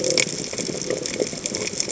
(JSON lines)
{"label": "biophony", "recorder": "HydroMoth"}